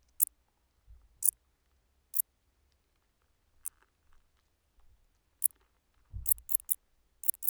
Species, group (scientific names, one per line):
Decticus verrucivorus
Orthoptera